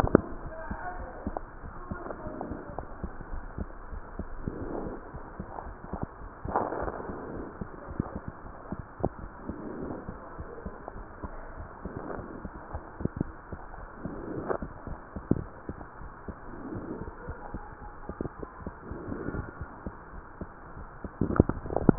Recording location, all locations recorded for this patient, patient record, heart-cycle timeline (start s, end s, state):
aortic valve (AV)
aortic valve (AV)+pulmonary valve (PV)+tricuspid valve (TV)+mitral valve (MV)
#Age: Child
#Sex: Female
#Height: 113.0 cm
#Weight: 22.5 kg
#Pregnancy status: False
#Murmur: Absent
#Murmur locations: nan
#Most audible location: nan
#Systolic murmur timing: nan
#Systolic murmur shape: nan
#Systolic murmur grading: nan
#Systolic murmur pitch: nan
#Systolic murmur quality: nan
#Diastolic murmur timing: nan
#Diastolic murmur shape: nan
#Diastolic murmur grading: nan
#Diastolic murmur pitch: nan
#Diastolic murmur quality: nan
#Outcome: Normal
#Campaign: 2015 screening campaign
0.00	3.10	unannotated
3.10	3.26	diastole
3.26	3.44	S1
3.44	3.60	systole
3.60	3.72	S2
3.72	3.90	diastole
3.90	4.04	S1
4.04	4.18	systole
4.18	4.30	S2
4.30	4.46	diastole
4.46	4.64	S1
4.64	4.82	systole
4.82	4.98	S2
4.98	5.16	diastole
5.16	5.24	S1
5.24	5.36	systole
5.36	5.46	S2
5.46	5.64	diastole
5.64	5.76	S1
5.76	5.90	systole
5.90	6.00	S2
6.00	6.22	diastole
6.22	6.30	S1
6.30	6.44	systole
6.44	6.56	S2
6.56	6.76	diastole
6.76	6.94	S1
6.94	7.10	systole
7.10	7.20	S2
7.20	7.34	diastole
7.34	7.48	S1
7.48	7.62	systole
7.62	7.70	S2
7.70	7.88	diastole
7.88	7.98	S1
7.98	8.14	systole
8.14	8.24	S2
8.24	8.46	diastole
8.46	8.54	S1
8.54	8.68	systole
8.68	8.84	S2
8.84	9.13	diastole
9.13	9.30	S1
9.30	9.44	systole
9.44	9.58	S2
9.58	9.76	diastole
9.76	9.94	S1
9.94	10.08	systole
10.08	10.20	S2
10.20	10.38	diastole
10.38	10.48	S1
10.48	10.64	systole
10.64	10.74	S2
10.74	10.94	diastole
10.94	11.06	S1
11.06	11.22	systole
11.22	11.38	S2
11.38	11.58	diastole
11.58	11.70	S1
11.70	11.84	systole
11.84	11.94	S2
11.94	12.10	diastole
12.10	12.26	S1
12.26	12.40	systole
12.40	12.52	S2
12.52	12.70	diastole
12.70	21.98	unannotated